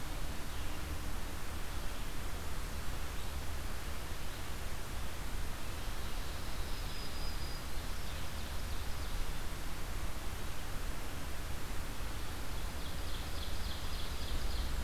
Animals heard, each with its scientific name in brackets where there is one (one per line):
Black-throated Green Warbler (Setophaga virens)
Ovenbird (Seiurus aurocapilla)